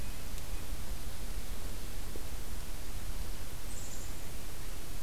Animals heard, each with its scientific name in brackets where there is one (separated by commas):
Black-capped Chickadee (Poecile atricapillus)